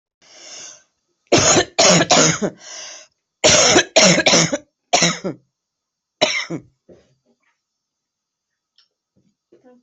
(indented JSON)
{
  "expert_labels": [
    {
      "quality": "ok",
      "cough_type": "dry",
      "dyspnea": false,
      "wheezing": false,
      "stridor": false,
      "choking": false,
      "congestion": false,
      "nothing": true,
      "diagnosis": "COVID-19",
      "severity": "mild"
    },
    {
      "quality": "good",
      "cough_type": "dry",
      "dyspnea": false,
      "wheezing": false,
      "stridor": false,
      "choking": false,
      "congestion": false,
      "nothing": true,
      "diagnosis": "COVID-19",
      "severity": "mild"
    },
    {
      "quality": "good",
      "cough_type": "wet",
      "dyspnea": false,
      "wheezing": false,
      "stridor": false,
      "choking": false,
      "congestion": false,
      "nothing": true,
      "diagnosis": "lower respiratory tract infection",
      "severity": "severe"
    },
    {
      "quality": "good",
      "cough_type": "wet",
      "dyspnea": false,
      "wheezing": false,
      "stridor": false,
      "choking": false,
      "congestion": false,
      "nothing": true,
      "diagnosis": "lower respiratory tract infection",
      "severity": "mild"
    }
  ],
  "age": 38,
  "gender": "female",
  "respiratory_condition": true,
  "fever_muscle_pain": false,
  "status": "symptomatic"
}